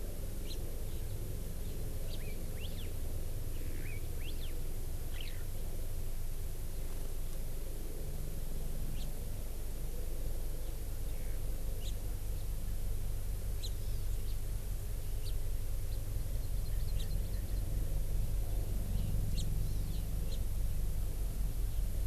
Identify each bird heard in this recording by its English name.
House Finch, Hawaii Elepaio, Eurasian Skylark, Hawaii Amakihi